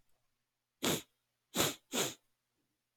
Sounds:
Sniff